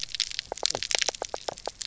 {"label": "biophony, knock croak", "recorder": "SoundTrap 300"}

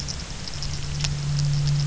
{"label": "anthrophony, boat engine", "recorder": "SoundTrap 300"}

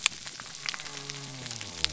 {"label": "biophony", "recorder": "SoundTrap 300"}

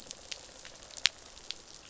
{"label": "biophony, rattle response", "recorder": "SoundTrap 500"}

